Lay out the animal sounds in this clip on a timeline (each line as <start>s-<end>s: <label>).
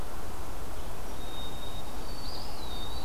1.0s-3.0s: White-throated Sparrow (Zonotrichia albicollis)
2.1s-3.0s: Eastern Wood-Pewee (Contopus virens)